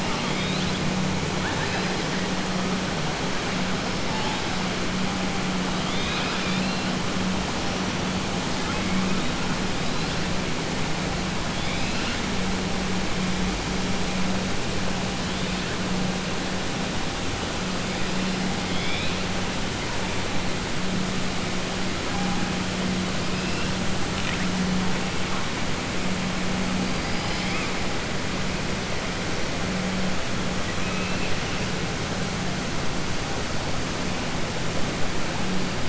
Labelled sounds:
0.0	0.8	killer whale, 1.1 to 4.1 kHz
1.3	1.9	killer whale, 0.80 to 5.0 kHz
30.7	31.3	killer whale, 2.3 to 3.5 kHz

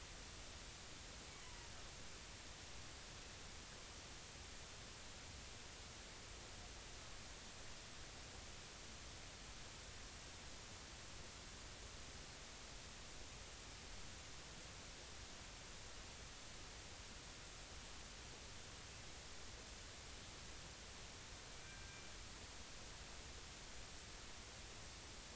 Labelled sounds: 21.5	22.0	killer whale, northern resident, G clan, 1.5 to 2.4 kHz

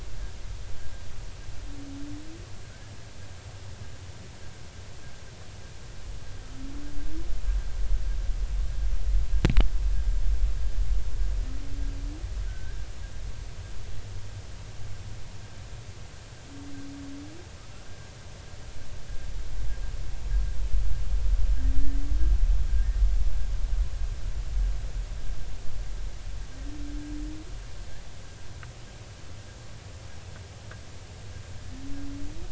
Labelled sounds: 12.4	12.8	humpback whale, 1.4 to 1.7 kHz

